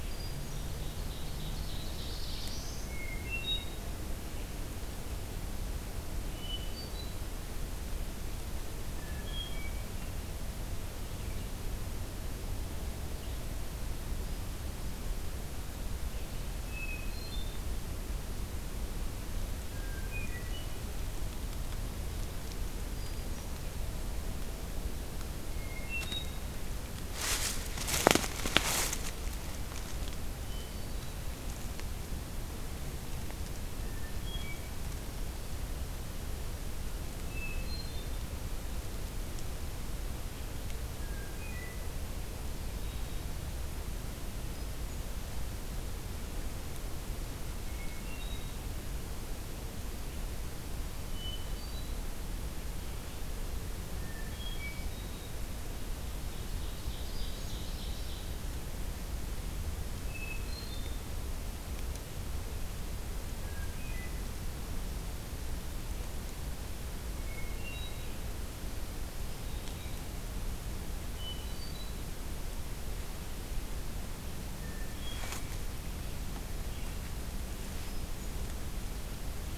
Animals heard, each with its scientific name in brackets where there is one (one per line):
Hermit Thrush (Catharus guttatus)
Black-throated Blue Warbler (Setophaga caerulescens)
Ovenbird (Seiurus aurocapilla)